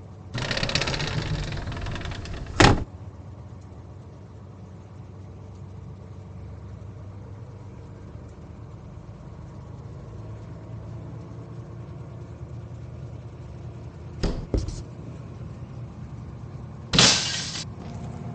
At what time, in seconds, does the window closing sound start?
0.3 s